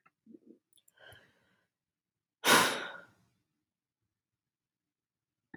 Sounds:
Sigh